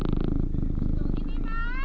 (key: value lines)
label: anthrophony, boat engine
recorder: SoundTrap 300